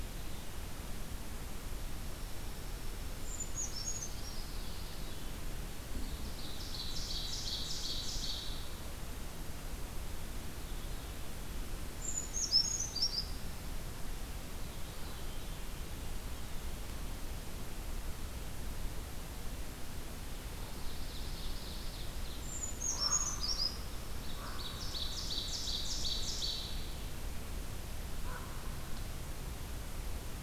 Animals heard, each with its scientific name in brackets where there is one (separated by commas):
Pine Warbler (Setophaga pinus), Common Raven (Corvus corax), Ovenbird (Seiurus aurocapilla), Dark-eyed Junco (Junco hyemalis), Brown Creeper (Certhia americana), Veery (Catharus fuscescens)